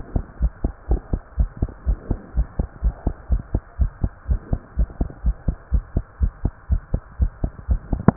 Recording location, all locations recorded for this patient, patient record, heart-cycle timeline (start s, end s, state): pulmonary valve (PV)
aortic valve (AV)+pulmonary valve (PV)+tricuspid valve (TV)+mitral valve (MV)
#Age: Child
#Sex: Male
#Height: 122.0 cm
#Weight: 28.1 kg
#Pregnancy status: False
#Murmur: Absent
#Murmur locations: nan
#Most audible location: nan
#Systolic murmur timing: nan
#Systolic murmur shape: nan
#Systolic murmur grading: nan
#Systolic murmur pitch: nan
#Systolic murmur quality: nan
#Diastolic murmur timing: nan
#Diastolic murmur shape: nan
#Diastolic murmur grading: nan
#Diastolic murmur pitch: nan
#Diastolic murmur quality: nan
#Outcome: Normal
#Campaign: 2015 screening campaign
0.00	0.12	unannotated
0.12	0.26	S2
0.26	0.38	diastole
0.38	0.52	S1
0.52	0.60	systole
0.60	0.72	S2
0.72	0.88	diastole
0.88	1.02	S1
1.02	1.10	systole
1.10	1.20	S2
1.20	1.36	diastole
1.36	1.50	S1
1.50	1.58	systole
1.58	1.70	S2
1.70	1.86	diastole
1.86	1.98	S1
1.98	2.08	systole
2.08	2.18	S2
2.18	2.36	diastole
2.36	2.48	S1
2.48	2.56	systole
2.56	2.66	S2
2.66	2.82	diastole
2.82	2.94	S1
2.94	3.04	systole
3.04	3.14	S2
3.14	3.30	diastole
3.30	3.44	S1
3.44	3.52	systole
3.52	3.62	S2
3.62	3.78	diastole
3.78	3.92	S1
3.92	4.02	systole
4.02	4.12	S2
4.12	4.28	diastole
4.28	4.42	S1
4.42	4.50	systole
4.50	4.60	S2
4.60	4.75	diastole
4.75	4.90	S1
4.90	4.98	systole
4.98	5.10	S2
5.10	5.24	diastole
5.24	5.36	S1
5.36	5.46	systole
5.46	5.56	S2
5.56	5.72	diastole
5.72	5.86	S1
5.86	5.96	systole
5.96	6.06	S2
6.06	6.20	diastole
6.20	6.32	S1
6.32	6.44	systole
6.44	6.54	S2
6.54	6.70	diastole
6.70	6.84	S1
6.84	6.92	systole
6.92	7.02	S2
7.02	7.20	diastole
7.20	7.34	S1
7.34	7.42	systole
7.42	7.52	S2
7.52	7.66	diastole
7.66	7.80	S1
7.80	8.16	unannotated